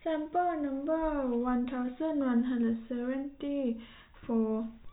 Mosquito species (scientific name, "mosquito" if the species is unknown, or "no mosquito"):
no mosquito